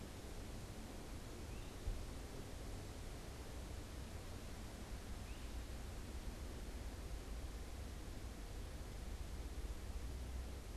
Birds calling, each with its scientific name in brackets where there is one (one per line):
Great Crested Flycatcher (Myiarchus crinitus)